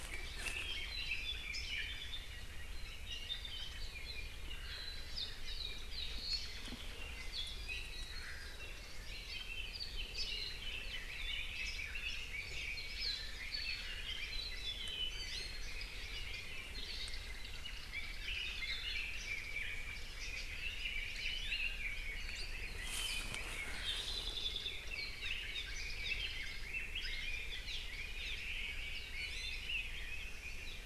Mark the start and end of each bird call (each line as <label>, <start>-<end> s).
Red-billed Leiothrix (Leiothrix lutea), 0.0-2.3 s
Apapane (Himatione sanguinea), 0.5-1.6 s
Hawaii Creeper (Loxops mana), 1.5-1.8 s
Omao (Myadestes obscurus), 4.4-5.1 s
Apapane (Himatione sanguinea), 5.1-6.8 s
Omao (Myadestes obscurus), 6.2-6.8 s
Apapane (Himatione sanguinea), 7.3-7.7 s
Iiwi (Drepanis coccinea), 7.5-8.2 s
Omao (Myadestes obscurus), 8.0-8.7 s
Apapane (Himatione sanguinea), 9.0-10.7 s
Red-billed Leiothrix (Leiothrix lutea), 9.0-13.1 s
Apapane (Himatione sanguinea), 13.0-15.3 s
Iiwi (Drepanis coccinea), 15.0-15.7 s
Apapane (Himatione sanguinea), 16.2-18.5 s
Red-billed Leiothrix (Leiothrix lutea), 17.8-24.0 s
Iiwi (Drepanis coccinea), 21.2-21.8 s
Hawaii Creeper (Loxops mana), 22.3-22.5 s
Apapane (Himatione sanguinea), 23.7-24.8 s
Red-billed Leiothrix (Leiothrix lutea), 24.4-30.5 s
Apapane (Himatione sanguinea), 25.1-25.7 s
Apapane (Himatione sanguinea), 26.0-26.2 s
Apapane (Himatione sanguinea), 27.6-27.9 s
Omao (Myadestes obscurus), 28.1-28.9 s
Apapane (Himatione sanguinea), 28.2-28.4 s
Iiwi (Drepanis coccinea), 29.1-29.7 s